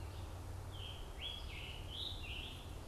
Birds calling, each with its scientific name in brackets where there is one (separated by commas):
Red-eyed Vireo (Vireo olivaceus), Scarlet Tanager (Piranga olivacea)